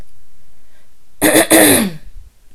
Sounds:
Throat clearing